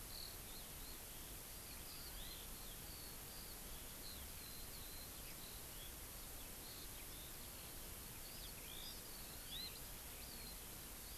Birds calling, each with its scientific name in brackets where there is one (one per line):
Hawaii Amakihi (Chlorodrepanis virens)
Eurasian Skylark (Alauda arvensis)